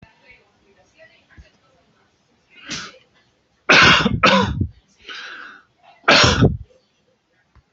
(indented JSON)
{
  "expert_labels": [
    {
      "quality": "ok",
      "cough_type": "unknown",
      "dyspnea": false,
      "wheezing": false,
      "stridor": false,
      "choking": false,
      "congestion": false,
      "nothing": true,
      "diagnosis": "lower respiratory tract infection",
      "severity": "mild"
    },
    {
      "quality": "ok",
      "cough_type": "dry",
      "dyspnea": false,
      "wheezing": false,
      "stridor": false,
      "choking": false,
      "congestion": false,
      "nothing": true,
      "diagnosis": "COVID-19",
      "severity": "mild"
    },
    {
      "quality": "good",
      "cough_type": "wet",
      "dyspnea": false,
      "wheezing": false,
      "stridor": false,
      "choking": false,
      "congestion": false,
      "nothing": true,
      "diagnosis": "upper respiratory tract infection",
      "severity": "mild"
    },
    {
      "quality": "good",
      "cough_type": "wet",
      "dyspnea": false,
      "wheezing": false,
      "stridor": false,
      "choking": false,
      "congestion": false,
      "nothing": true,
      "diagnosis": "lower respiratory tract infection",
      "severity": "mild"
    }
  ],
  "age": 45,
  "gender": "male",
  "respiratory_condition": false,
  "fever_muscle_pain": false,
  "status": "healthy"
}